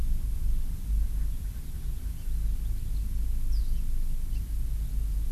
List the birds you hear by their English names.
Erckel's Francolin